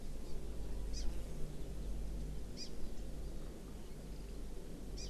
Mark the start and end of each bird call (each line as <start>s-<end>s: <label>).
0.2s-0.4s: Hawaii Amakihi (Chlorodrepanis virens)
0.9s-1.1s: Hawaii Amakihi (Chlorodrepanis virens)
2.6s-2.7s: Hawaii Amakihi (Chlorodrepanis virens)
5.0s-5.1s: Hawaii Amakihi (Chlorodrepanis virens)